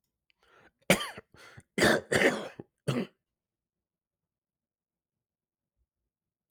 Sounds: Throat clearing